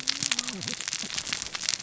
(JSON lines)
{"label": "biophony, cascading saw", "recorder": "SoundTrap 600 or HydroMoth"}